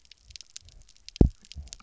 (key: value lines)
label: biophony, double pulse
recorder: SoundTrap 300